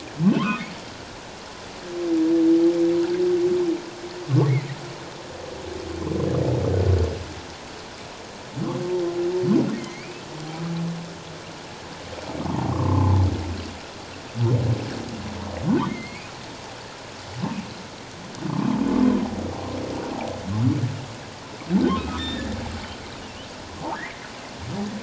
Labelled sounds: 0.4	0.6	humpback whale, 0.88 to 1.5 kHz
9.8	10.2	humpback whale, 2.0 to 2.7 kHz
12.7	13.2	humpback whale, 0.91 to 1.3 kHz
15.9	16.3	humpback whale, 2.0 to 4.3 kHz
22.0	22.5	humpback whale, 1.2 to 3.7 kHz
23.9	24.3	humpback whale, 1.5 to 2.4 kHz

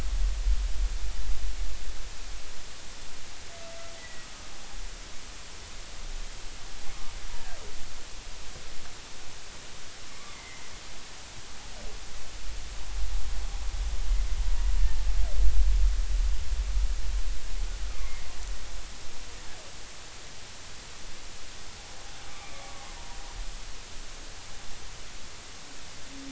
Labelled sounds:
3.9	4.3	humpback whale, 1.9 to 2.0 kHz
10.2	10.7	humpback whale, 1.1 to 2.2 kHz
17.9	18.3	humpback whale, 2.0 to 2.2 kHz
22.3	22.8	humpback whale, 1.1 to 2.4 kHz

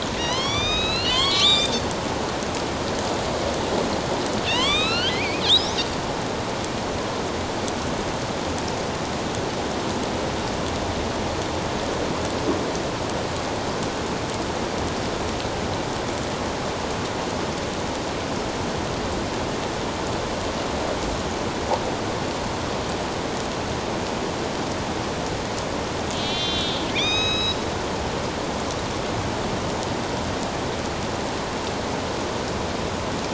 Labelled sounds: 1.1	1.7	killer whale, northern resident, A clan, AB subclan, 0.97 to 7.5 kHz
4.5	5.7	killer whale, northern resident, A clan, AB subclan, 0.91 to 5.8 kHz
26.1	27.6	killer whale, northern resident, A clan, AB subclan, 1.2 to 6.5 kHz

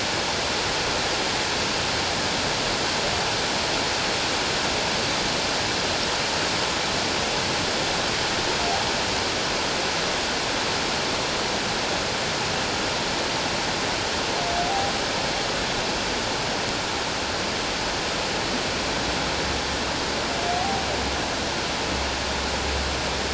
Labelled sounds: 20.6	20.8	humpback whale, 0.78 to 0.84 kHz

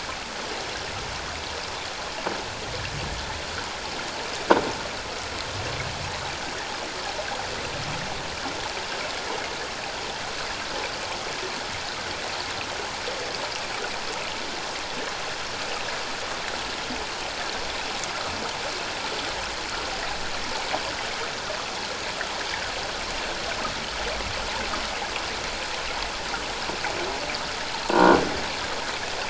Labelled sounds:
27.9	28.2	croaking sound likely from a nearby submerged object, 1.4 to 1.5 kHz

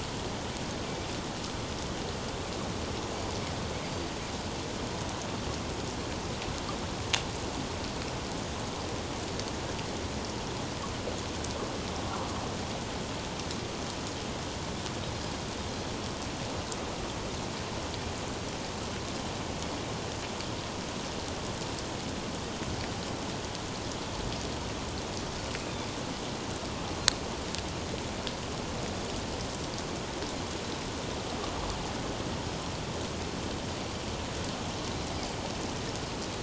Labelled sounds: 3.8	4.1	Pacific white-sided dolphin, 4.5 to 4.9 kHz

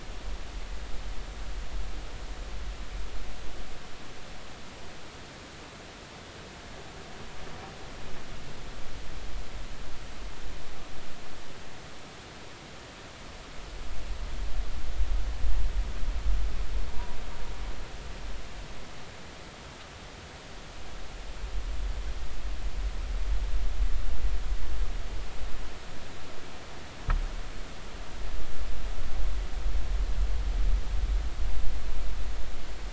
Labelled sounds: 16.9	17.2	vessel noise, 0.90 to 1.0 kHz

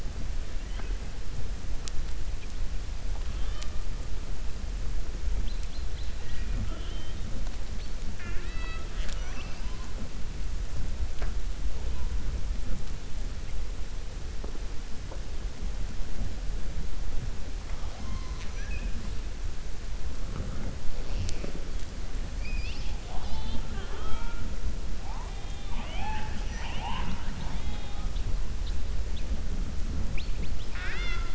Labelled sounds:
30.4	31.3	killer whale, 0.50 to 6.1 kHz

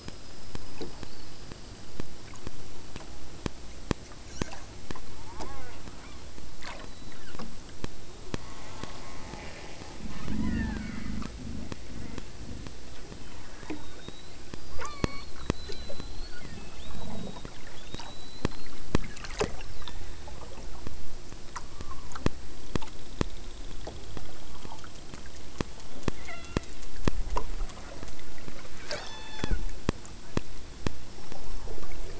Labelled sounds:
5.0	6.3	killer whale, southern Alaska resident, 0.22 to 4.3 kHz
6.7	7.5	killer whale, southern Alaska resident, 0.34 to 4.1 kHz
8.3	11.2	killer whale, southern Alaska resident, 0.66 to 8.0 kHz
14.8	15.4	killer whale, southern Alaska resident, 0.41 to 6.0 kHz
16.1	16.7	killer whale, southern Alaska resident, 0.86 to 2.4 kHz
19.7	20.2	killer whale, southern Alaska resident, 0.85 to 6.6 kHz
21.6	22.2	killer whale, southern Alaska resident, 0.61 to 1.3 kHz
26.1	26.8	killer whale, southern Alaska resident, 0.39 to 4.5 kHz
28.9	29.6	killer whale, southern Alaska resident, 0.29 to 8.0 kHz

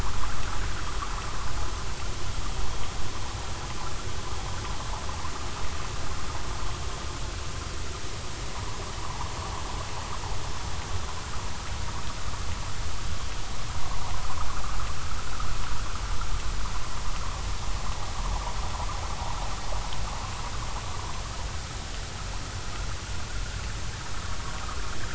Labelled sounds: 10.0	10.3	vessel noise, 0.80 to 1.2 kHz

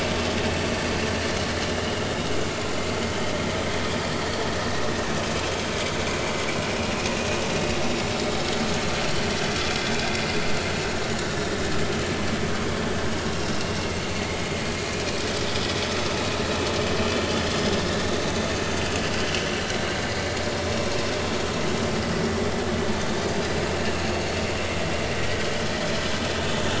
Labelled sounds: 4.1	4.5	vessel noise, 4.3 to 4.6 kHz

